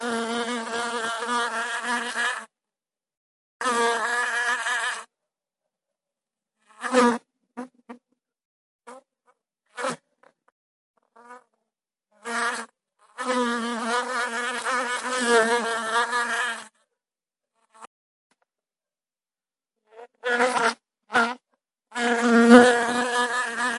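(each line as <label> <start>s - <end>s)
A single bee buzzes while flying. 0.0s - 23.8s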